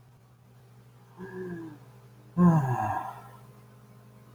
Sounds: Sigh